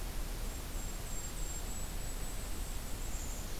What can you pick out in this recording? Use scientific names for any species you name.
Regulus satrapa